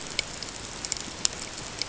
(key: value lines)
label: ambient
recorder: HydroMoth